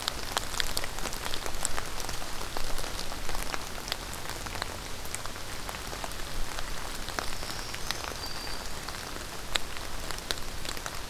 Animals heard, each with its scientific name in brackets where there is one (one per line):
Black-throated Green Warbler (Setophaga virens)